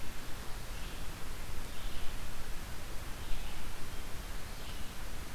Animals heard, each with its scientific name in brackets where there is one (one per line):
Red-eyed Vireo (Vireo olivaceus)